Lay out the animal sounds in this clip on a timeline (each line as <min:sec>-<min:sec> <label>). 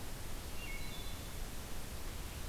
0:00.5-0:01.3 Wood Thrush (Hylocichla mustelina)